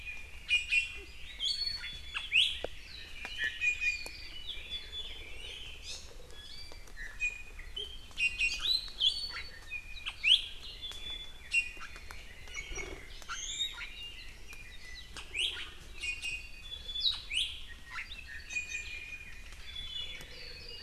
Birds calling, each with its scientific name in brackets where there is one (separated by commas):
Iiwi (Drepanis coccinea)